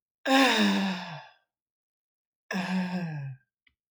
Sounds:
Sigh